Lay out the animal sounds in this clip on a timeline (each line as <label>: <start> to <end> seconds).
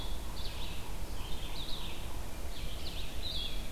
Yellow-bellied Sapsucker (Sphyrapicus varius): 0.0 to 2.2 seconds
Blue-headed Vireo (Vireo solitarius): 0.0 to 3.7 seconds
Red-eyed Vireo (Vireo olivaceus): 0.3 to 3.7 seconds